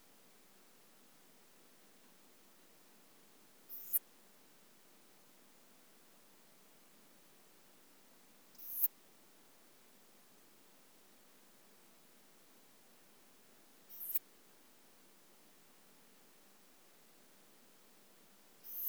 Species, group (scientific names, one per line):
Poecilimon pseudornatus
Orthoptera